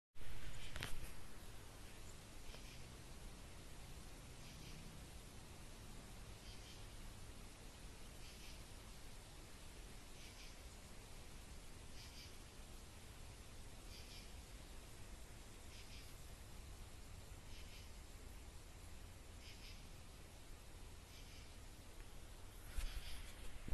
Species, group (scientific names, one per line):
Pterophylla camellifolia
Orthoptera